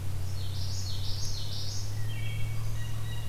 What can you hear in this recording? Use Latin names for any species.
Geothlypis trichas, Hylocichla mustelina, Corvus corax, Cyanocitta cristata